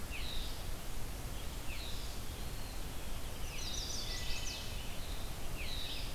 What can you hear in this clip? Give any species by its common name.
Red-eyed Vireo, Eastern Wood-Pewee, Chestnut-sided Warbler, Wood Thrush